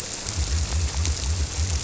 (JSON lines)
{"label": "biophony", "recorder": "SoundTrap 300"}